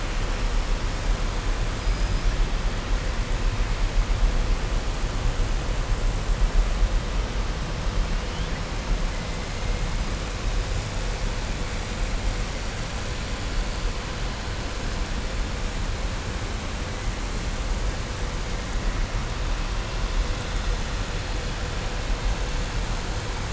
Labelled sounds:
1.9	2.2	killer whale, southern resident, 5.0 to 5.9 kHz

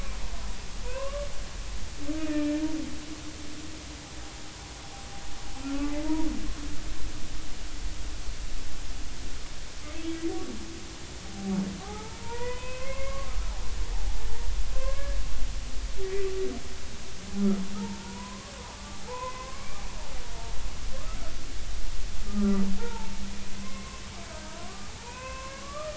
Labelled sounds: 0.8	1.2	humpback whale, 0.93 to 2.9 kHz
2.2	2.6	humpback whale, 2.3 to 2.6 kHz
5.6	6.3	humpback whale, 0.83 to 1.5 kHz
11.8	13.3	humpback whale, 0.80 to 2.7 kHz
14.7	15.2	humpback whale, 0.99 to 1.7 kHz
17.8	18.5	humpback whale, 0.83 to 1.2 kHz
19.1	19.9	humpback whale, 0.80 to 2.4 kHz
22.3	24.0	humpback whale, 0.83 to 2.2 kHz
24.6	25.9	humpback whale, 0.80 to 2.7 kHz

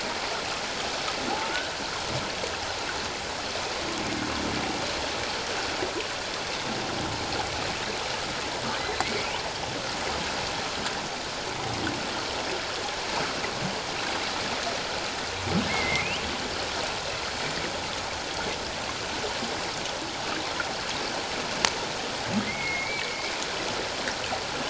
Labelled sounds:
1.3	1.8	humpback whale, 0.78 to 1.6 kHz
8.8	9.1	humpback whale, 3.9 to 4.1 kHz
15.7	16.1	humpback whale, 2.0 to 2.3 kHz
22.4	23.2	humpback whale, 2.0 to 2.4 kHz

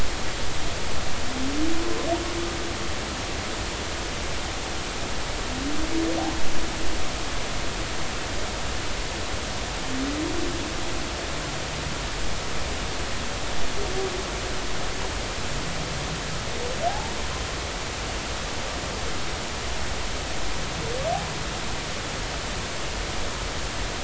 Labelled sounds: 16.9	17.1	humpback whale, 0.80 to 0.96 kHz

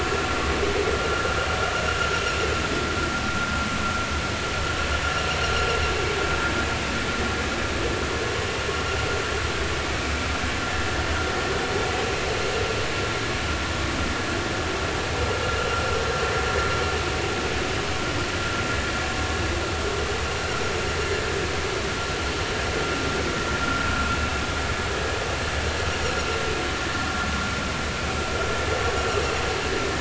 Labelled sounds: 24.2	24.4	vessel noise, 2.6 to 2.8 kHz

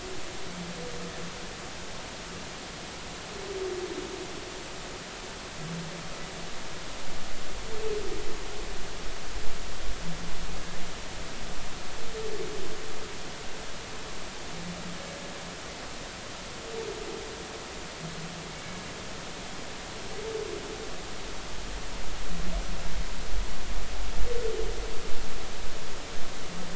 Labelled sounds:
18.5	18.8	humpback whale, 2.2 to 2.4 kHz

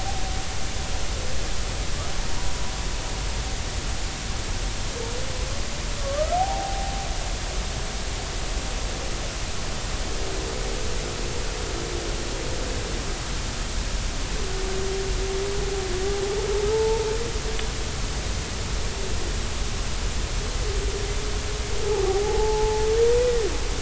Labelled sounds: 6.0	6.9	humpback whale, 0.80 to 1.4 kHz
16.7	17.1	humpback whale, 0.83 to 0.96 kHz
21.9	22.9	humpback whale, 0.80 to 0.93 kHz

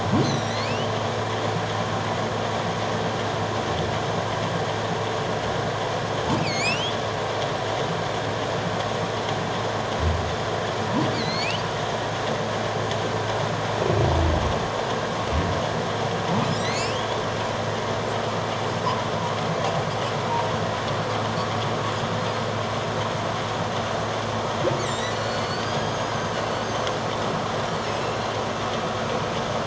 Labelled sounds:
0.2	0.9	humpback whale, 1.9 to 6.4 kHz
6.4	7.0	humpback whale, 2.1 to 8.0 kHz
11.1	11.6	humpback whale, 2.0 to 7.0 kHz
16.5	17.2	humpback whale, 1.9 to 4.8 kHz
24.9	26.1	humpback whale, 2.9 to 7.4 kHz
27.9	28.2	humpback whale, 2.5 to 2.8 kHz

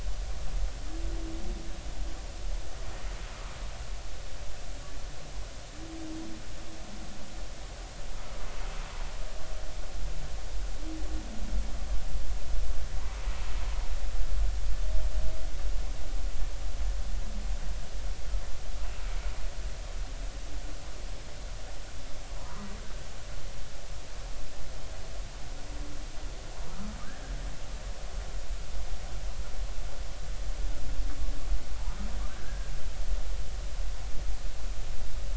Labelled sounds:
22.4	22.7	humpback whale, 0.93 to 1.3 kHz
32.3	32.7	humpback whale, 1.5 to 1.7 kHz

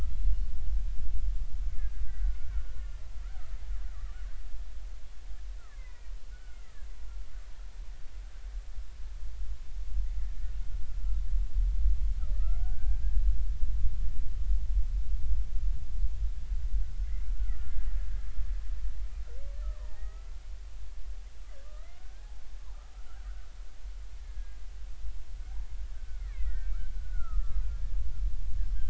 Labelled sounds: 0.2	0.4	killer whale, Bigg's (transient), 2.7 to 2.9 kHz
1.8	2.9	killer whale, Bigg's (transient), 1.2 to 1.8 kHz
5.6	6.7	killer whale, Bigg's (transient), 0.93 to 2.6 kHz
10.2	10.5	killer whale, Bigg's (transient), 1.7 to 1.9 kHz
12.3	13.2	killer whale, Bigg's (transient), 1.1 to 1.7 kHz
17.0	17.9	killer whale, Bigg's (transient), 1.2 to 2.3 kHz
19.6	20.1	killer whale, Bigg's (transient), 0.80 to 1.4 kHz
21.6	22.3	killer whale, Bigg's (transient), 1.2 to 2.2 kHz
24.2	24.6	killer whale, Bigg's (transient), 1.6 to 1.8 kHz
25.9	27.6	killer whale, Bigg's (transient), 1.0 to 2.5 kHz

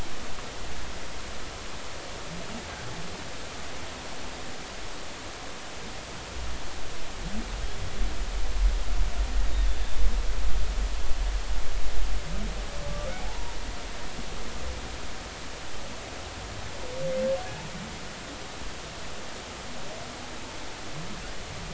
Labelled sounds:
13.2	13.6	humpback whale, 0.80 to 0.99 kHz

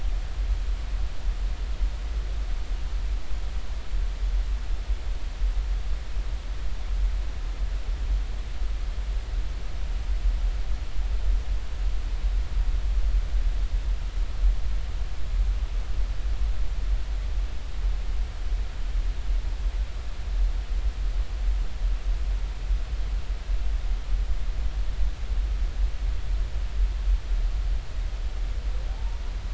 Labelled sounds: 28.9	29.2	humpback whale, 0.80 to 1.0 kHz

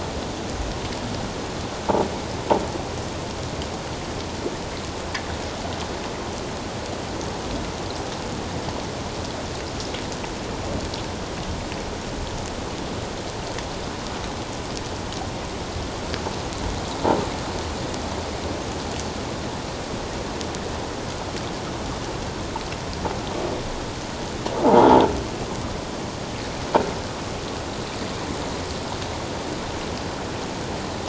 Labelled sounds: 24.6	24.9	croaking sound likely from a nearby submerged object, 0.78 to 1.0 kHz

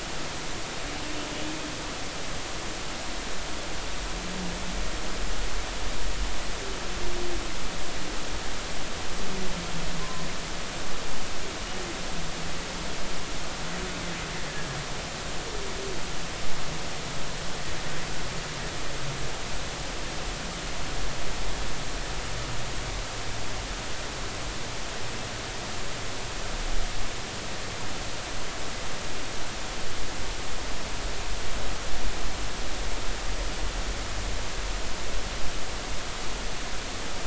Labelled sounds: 10.0	10.3	humpback whale, 0.96 to 1.1 kHz

